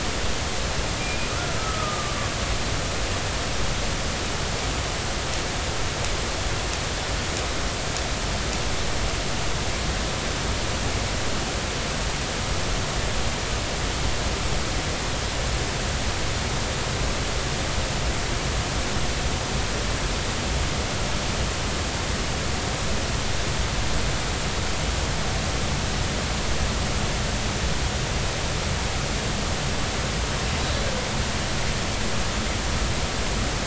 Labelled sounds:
1.0	2.2	killer whale, Bigg's (transient), 1.1 to 2.5 kHz

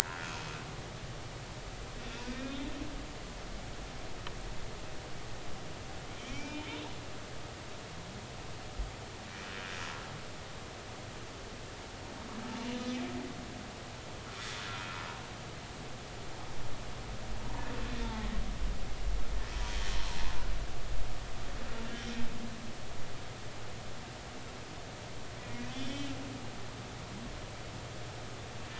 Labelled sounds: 0.1	0.3	humpback whale, 1.3 to 1.7 kHz
2.3	2.6	humpback whale, 2.3 to 2.6 kHz
6.3	6.7	humpback whale, 0.86 to 2.5 kHz
12.8	13.0	humpback whale, 5.0 to 5.2 kHz
25.7	26.1	humpback whale, 2.8 to 3.6 kHz

